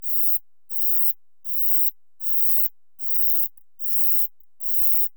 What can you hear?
Uromenus brevicollis, an orthopteran